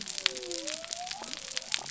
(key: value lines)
label: biophony
recorder: SoundTrap 300